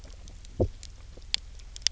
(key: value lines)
label: biophony, low growl
recorder: SoundTrap 300